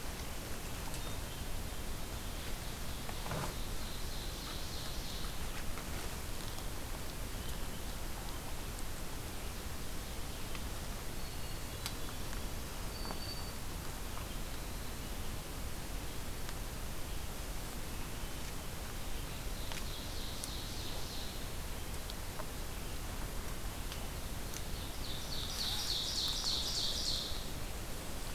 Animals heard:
Winter Wren (Troglodytes hiemalis)
Hermit Thrush (Catharus guttatus)
Ovenbird (Seiurus aurocapilla)
Black-throated Green Warbler (Setophaga virens)

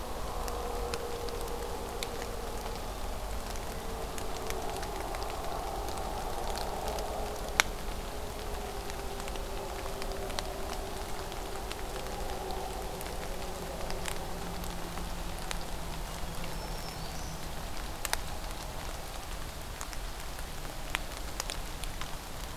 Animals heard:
Black-throated Green Warbler (Setophaga virens)

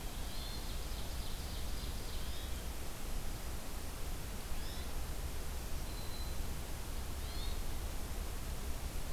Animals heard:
Hermit Thrush (Catharus guttatus)
Black-throated Green Warbler (Setophaga virens)
Ovenbird (Seiurus aurocapilla)

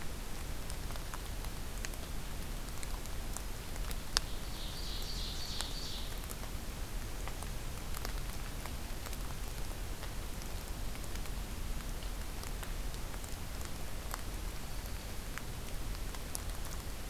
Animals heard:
Ovenbird (Seiurus aurocapilla)

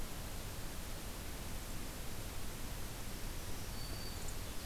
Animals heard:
Black-throated Green Warbler (Setophaga virens)

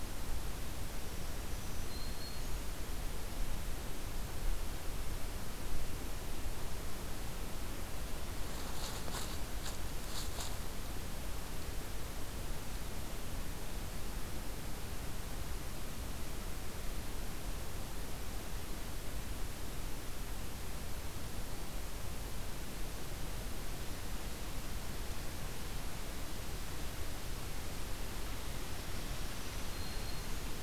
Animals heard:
Black-throated Green Warbler (Setophaga virens)

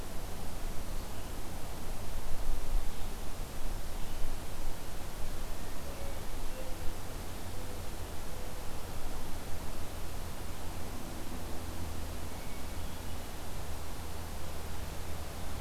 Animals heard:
Hermit Thrush (Catharus guttatus)

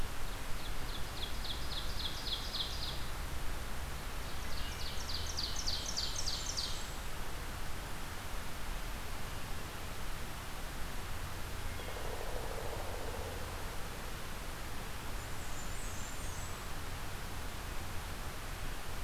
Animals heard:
Blackburnian Warbler (Setophaga fusca)
Ovenbird (Seiurus aurocapilla)

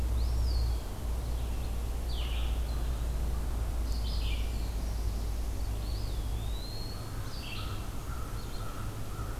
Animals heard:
Red-eyed Vireo (Vireo olivaceus)
American Crow (Corvus brachyrhynchos)
Eastern Wood-Pewee (Contopus virens)

